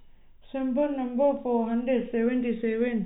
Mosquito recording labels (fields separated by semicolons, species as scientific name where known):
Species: no mosquito; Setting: cup